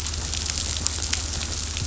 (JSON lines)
{"label": "anthrophony, boat engine", "recorder": "SoundTrap 500"}